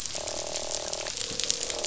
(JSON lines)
{"label": "biophony, croak", "recorder": "SoundTrap 500"}